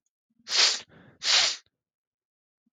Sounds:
Sniff